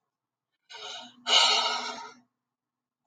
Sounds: Sigh